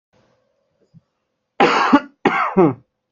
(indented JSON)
{
  "expert_labels": [
    {
      "quality": "good",
      "cough_type": "dry",
      "dyspnea": false,
      "wheezing": false,
      "stridor": false,
      "choking": false,
      "congestion": false,
      "nothing": true,
      "diagnosis": "healthy cough",
      "severity": "pseudocough/healthy cough"
    }
  ],
  "age": 23,
  "gender": "male",
  "respiratory_condition": false,
  "fever_muscle_pain": false,
  "status": "healthy"
}